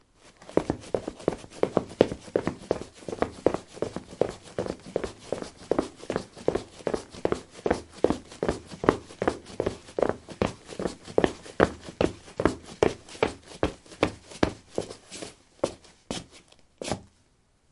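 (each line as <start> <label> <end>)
0.6 Loud, pounding footsteps run across the floor and then stop after a while. 17.0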